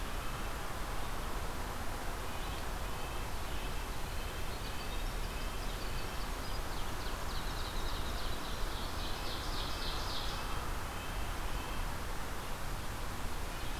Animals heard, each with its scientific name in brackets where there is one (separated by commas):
Ovenbird (Seiurus aurocapilla), Red-breasted Nuthatch (Sitta canadensis), Winter Wren (Troglodytes hiemalis)